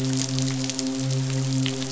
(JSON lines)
{"label": "biophony, midshipman", "recorder": "SoundTrap 500"}